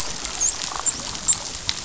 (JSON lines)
{"label": "biophony, dolphin", "recorder": "SoundTrap 500"}